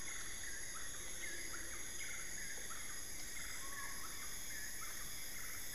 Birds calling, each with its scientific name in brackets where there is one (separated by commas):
Black-fronted Nunbird (Monasa nigrifrons), Collared Forest-Falcon (Micrastur semitorquatus)